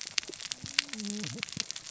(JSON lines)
{"label": "biophony, cascading saw", "recorder": "SoundTrap 600 or HydroMoth"}